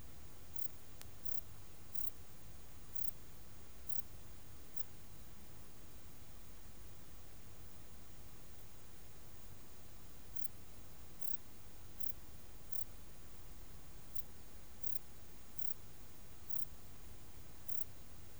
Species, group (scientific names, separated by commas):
Pterolepis spoliata, Orthoptera